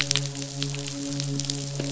{"label": "biophony, midshipman", "recorder": "SoundTrap 500"}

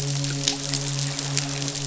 {"label": "biophony, midshipman", "recorder": "SoundTrap 500"}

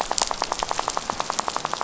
{"label": "biophony, rattle", "recorder": "SoundTrap 500"}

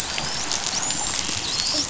{"label": "biophony, dolphin", "recorder": "SoundTrap 500"}
{"label": "biophony", "recorder": "SoundTrap 500"}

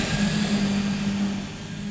{"label": "anthrophony, boat engine", "recorder": "SoundTrap 500"}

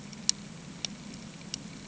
{"label": "anthrophony, boat engine", "recorder": "HydroMoth"}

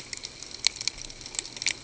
{"label": "ambient", "recorder": "HydroMoth"}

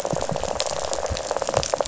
{"label": "biophony, rattle", "recorder": "SoundTrap 500"}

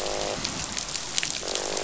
{"label": "biophony, croak", "recorder": "SoundTrap 500"}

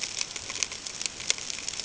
{"label": "ambient", "recorder": "HydroMoth"}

